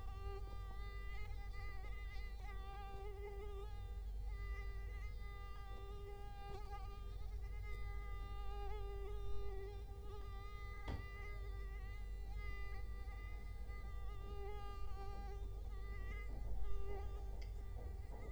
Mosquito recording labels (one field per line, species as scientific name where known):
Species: Culex quinquefasciatus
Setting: cup